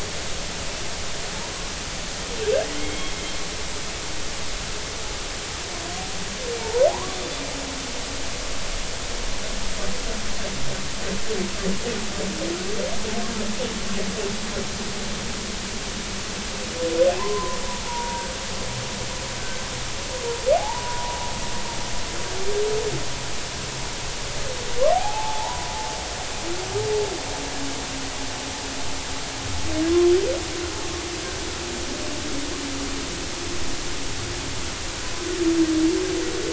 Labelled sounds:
2.7	3.1	humpback whale, 1.9 to 3.3 kHz
6.6	7.2	humpback whale, 0.80 to 1.2 kHz
17.2	18.3	humpback whale, 0.83 to 1.1 kHz
20.5	21.2	humpback whale, 0.80 to 1.0 kHz
24.9	25.7	humpback whale, 0.80 to 1.0 kHz

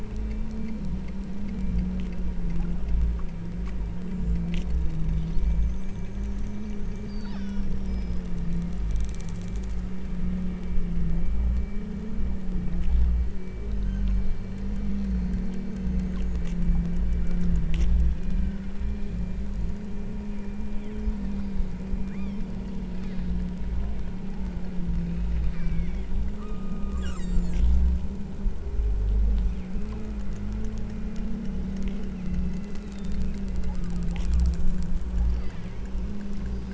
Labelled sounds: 7.0	8.3	killer whale, southern Alaska resident, 1.0 to 6.1 kHz
18.1	18.8	killer whale, southern Alaska resident, 1.2 to 4.2 kHz
20.7	21.1	killer whale, southern Alaska resident, 1.8 to 3.7 kHz
22.1	22.5	killer whale, southern Alaska resident, 1.9 to 5.0 kHz
25.5	27.8	killer whale, southern Alaska resident, 1.0 to 8.0 kHz
32.1	34.7	killer whale, southern Alaska resident, 0.52 to 4.3 kHz
35.2	36.2	killer whale, southern Alaska resident, 1.7 to 5.9 kHz

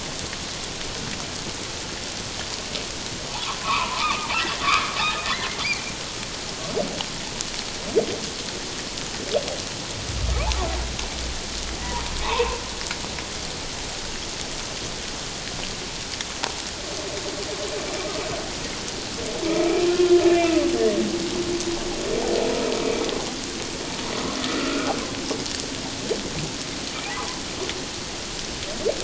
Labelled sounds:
3.3	4.3	humpback whale, 0.78 to 2.7 kHz
4.6	5.5	humpback whale, 1.8 to 3.8 kHz
12.2	12.6	humpback whale, 0.81 to 2.8 kHz
19.5	19.8	humpback whale, 1.2 to 1.3 kHz
20.3	20.6	humpback whale, 2.5 to 2.8 kHz
24.4	24.9	humpback whale, 1.2 to 1.5 kHz

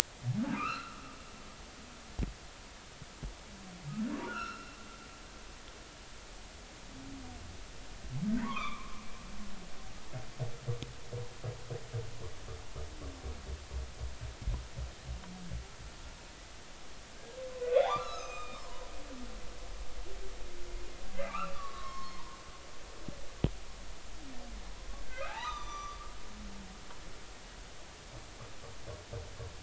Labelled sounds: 0.5	1.0	humpback whale, 1.1 to 4.4 kHz
4.3	4.8	humpback whale, 1.2 to 5.6 kHz
8.4	9.0	humpback whale, 0.80 to 2.6 kHz
17.6	18.9	humpback whale, 0.80 to 7.5 kHz
21.2	22.3	humpback whale, 0.90 to 5.4 kHz
25.0	26.0	humpback whale, 0.80 to 6.0 kHz

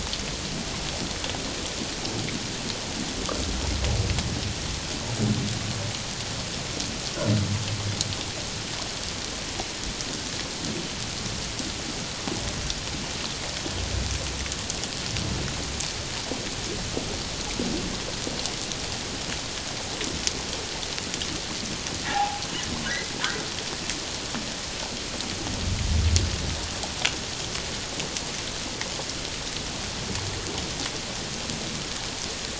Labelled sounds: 22.1	22.4	humpback whale, 0.78 to 1.0 kHz

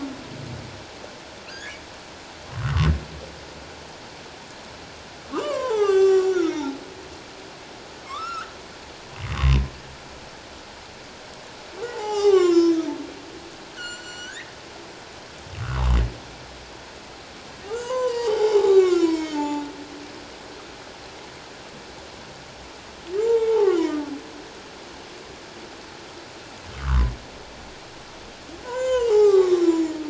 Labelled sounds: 1.5	2.9	humpback whale, 1.0 to 1.9 kHz
5.2	6.8	humpback whale, 0.78 to 7.8 kHz
8.0	8.5	humpback whale, 1.0 to 5.6 kHz
9.2	9.6	humpback whale, 0.94 to 1.2 kHz
11.9	12.9	humpback whale, 0.78 to 7.3 kHz
13.7	14.5	humpback whale, 1.3 to 7.4 kHz
15.6	16.0	humpback whale, 0.81 to 1.6 kHz
17.6	19.6	humpback whale, 0.78 to 7.8 kHz
23.2	24.0	humpback whale, 0.78 to 2.2 kHz
26.7	27.1	humpback whale, 0.97 to 1.7 kHz
28.6	30.0	humpback whale, 0.78 to 7.4 kHz

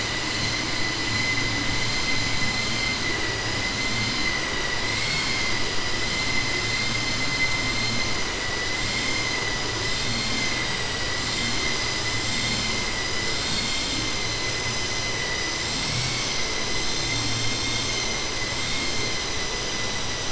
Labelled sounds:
4.9	5.5	vessel noise, 1.5 to 7.7 kHz
13.3	14.0	vessel noise, 3.1 to 4.8 kHz
18.6	19.1	vessel noise, 2.1 to 6.2 kHz

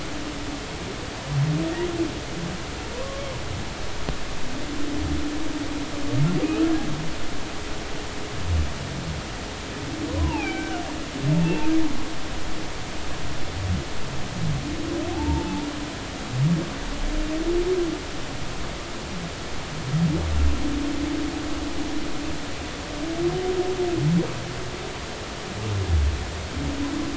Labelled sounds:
10.1	10.8	humpback whale, 0.80 to 2.9 kHz
15.1	15.7	humpback whale, 0.80 to 0.96 kHz

